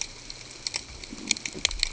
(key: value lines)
label: ambient
recorder: HydroMoth